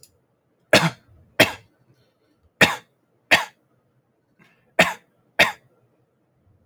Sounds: Cough